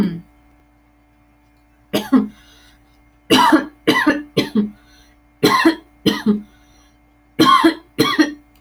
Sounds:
Sigh